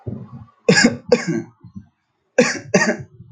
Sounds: Cough